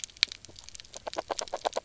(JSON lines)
{"label": "biophony, knock croak", "recorder": "SoundTrap 300"}